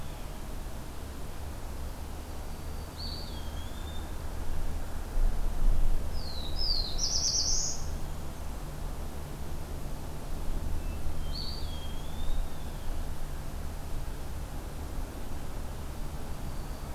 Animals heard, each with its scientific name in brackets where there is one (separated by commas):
Black-throated Blue Warbler (Setophaga caerulescens), Eastern Wood-Pewee (Contopus virens), Hermit Thrush (Catharus guttatus), Black-throated Green Warbler (Setophaga virens)